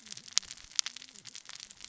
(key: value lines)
label: biophony, cascading saw
recorder: SoundTrap 600 or HydroMoth